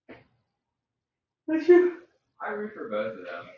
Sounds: Sneeze